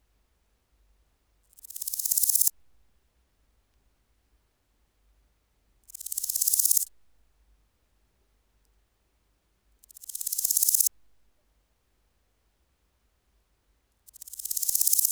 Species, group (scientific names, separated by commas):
Chrysochraon dispar, Orthoptera